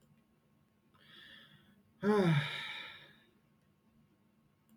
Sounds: Sigh